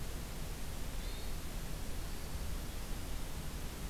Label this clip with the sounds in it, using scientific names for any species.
Catharus guttatus